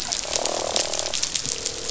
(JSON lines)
{"label": "biophony, croak", "recorder": "SoundTrap 500"}